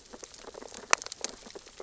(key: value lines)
label: biophony, sea urchins (Echinidae)
recorder: SoundTrap 600 or HydroMoth